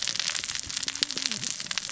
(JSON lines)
{"label": "biophony, cascading saw", "recorder": "SoundTrap 600 or HydroMoth"}